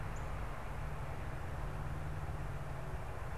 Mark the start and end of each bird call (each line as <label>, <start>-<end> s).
Northern Cardinal (Cardinalis cardinalis), 0.0-0.2 s
Northern Flicker (Colaptes auratus), 1.2-3.4 s